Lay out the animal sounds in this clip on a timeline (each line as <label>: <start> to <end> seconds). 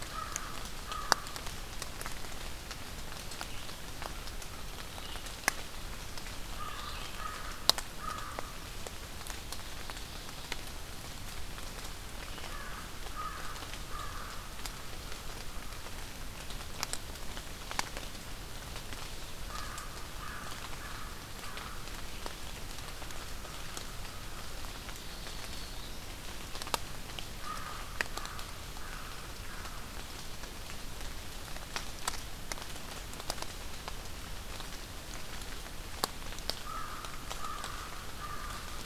American Crow (Corvus brachyrhynchos): 0.0 to 1.4 seconds
Red-eyed Vireo (Vireo olivaceus): 0.0 to 7.3 seconds
American Crow (Corvus brachyrhynchos): 6.5 to 8.8 seconds
American Crow (Corvus brachyrhynchos): 12.4 to 14.4 seconds
American Crow (Corvus brachyrhynchos): 19.4 to 24.7 seconds
Black-throated Green Warbler (Setophaga virens): 24.9 to 26.1 seconds
American Crow (Corvus brachyrhynchos): 27.3 to 29.8 seconds
American Crow (Corvus brachyrhynchos): 36.6 to 38.9 seconds